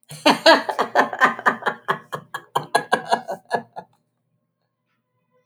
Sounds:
Laughter